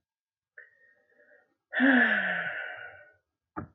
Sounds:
Sigh